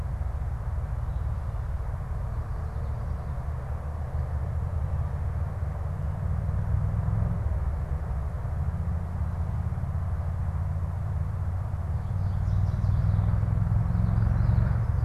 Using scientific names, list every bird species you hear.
Setophaga pensylvanica